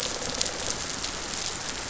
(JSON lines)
{"label": "biophony", "recorder": "SoundTrap 500"}